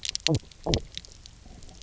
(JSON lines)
{"label": "biophony, knock croak", "recorder": "SoundTrap 300"}